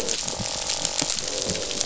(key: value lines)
label: biophony, croak
recorder: SoundTrap 500